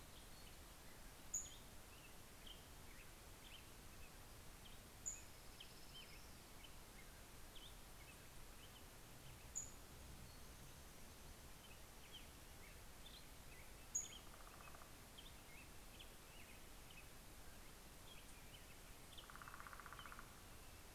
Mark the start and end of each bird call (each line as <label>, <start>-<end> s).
Black-headed Grosbeak (Pheucticus melanocephalus), 0.0-9.9 s
Pacific-slope Flycatcher (Empidonax difficilis), 0.7-2.4 s
Pacific-slope Flycatcher (Empidonax difficilis), 4.4-6.2 s
Pacific-slope Flycatcher (Empidonax difficilis), 9.0-10.5 s
Black-headed Grosbeak (Pheucticus melanocephalus), 10.6-20.9 s
Pacific-slope Flycatcher (Empidonax difficilis), 13.3-15.0 s
Northern Flicker (Colaptes auratus), 19.0-20.9 s